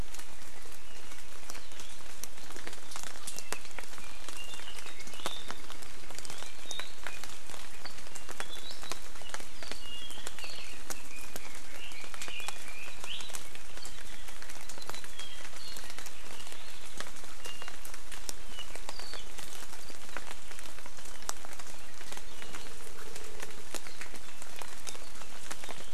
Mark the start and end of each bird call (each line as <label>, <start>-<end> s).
Apapane (Himatione sanguinea), 3.3-5.2 s
Red-billed Leiothrix (Leiothrix lutea), 9.8-13.0 s
Apapane (Himatione sanguinea), 14.8-15.9 s